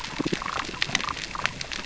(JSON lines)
{"label": "biophony, damselfish", "recorder": "SoundTrap 600 or HydroMoth"}